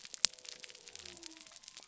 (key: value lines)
label: biophony
recorder: SoundTrap 300